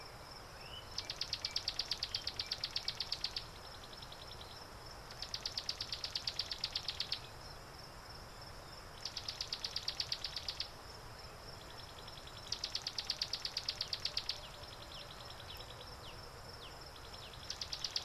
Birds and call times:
Black-backed Puffback (Dryoscopus cubla): 16.1s

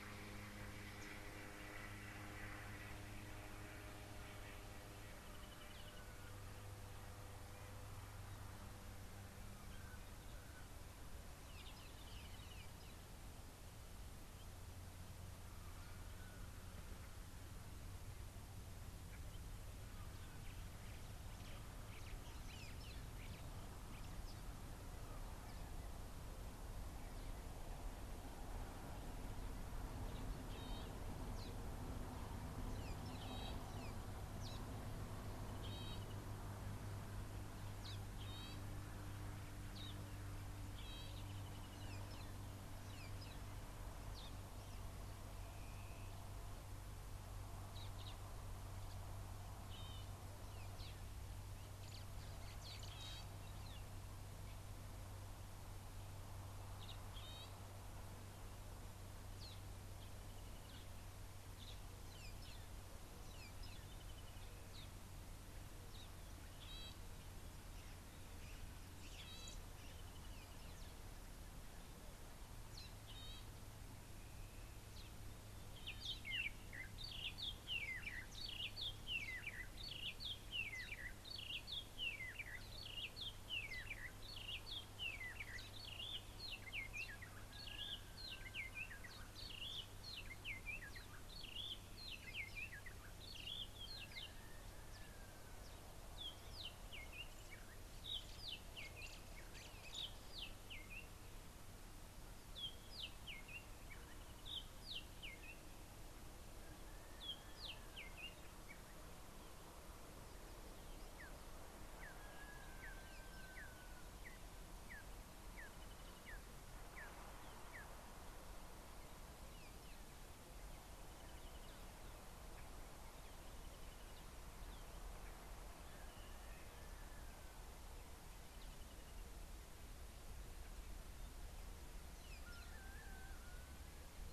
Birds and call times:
Brubru (Nilaus afer): 12.2s, 115.9s
Parrot-billed Sparrow (Passer gongonensis): 39.9s
Spotted Morning-Thrush (Cichladusa guttata): 80.3s, 88.6s, 103.1s, 107.7s
Red-and-yellow Barbet (Trachyphonus erythrocephalus): 114.9s

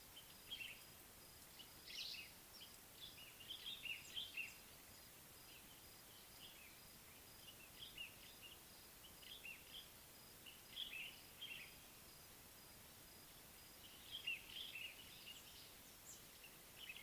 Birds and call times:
Common Bulbul (Pycnonotus barbatus): 3.9s, 9.5s

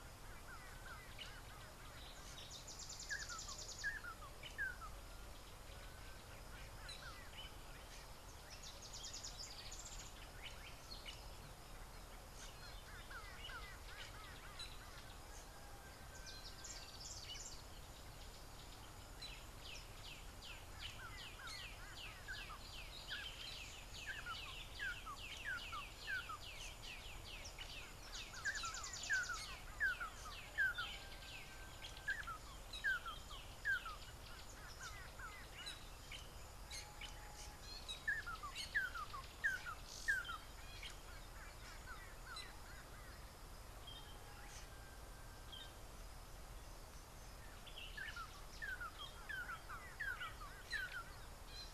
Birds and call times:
Variable Sunbird (Cinnyris venustus): 2.7s
Red-and-yellow Barbet (Trachyphonus erythrocephalus): 3.9s, 23.2s, 29.9s, 38.9s, 50.1s
Yellow-bellied Greenbul (Chlorocichla flaviventris): 13.5s, 21.5s, 35.0s, 42.3s
Collared Sunbird (Hedydipna collaris): 17.0s
Black-backed Puffback (Dryoscopus cubla): 20.5s

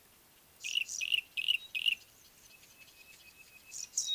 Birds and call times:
Yellow-breasted Apalis (Apalis flavida): 1.5s
Pygmy Batis (Batis perkeo): 3.1s

